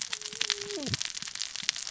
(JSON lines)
{"label": "biophony, cascading saw", "recorder": "SoundTrap 600 or HydroMoth"}